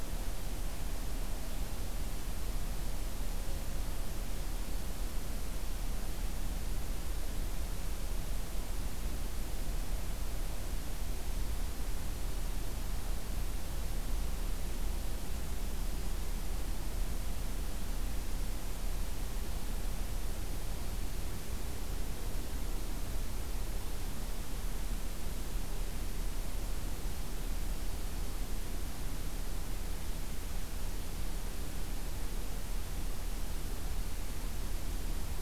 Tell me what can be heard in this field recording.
forest ambience